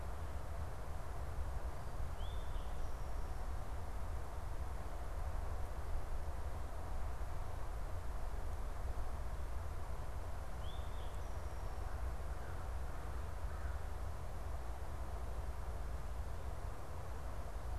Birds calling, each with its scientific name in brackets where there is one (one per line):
Eastern Towhee (Pipilo erythrophthalmus)
American Crow (Corvus brachyrhynchos)